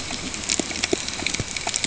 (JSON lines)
{"label": "ambient", "recorder": "HydroMoth"}